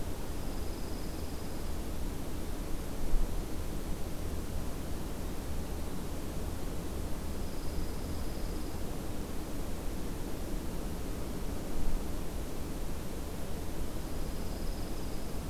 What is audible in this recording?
Dark-eyed Junco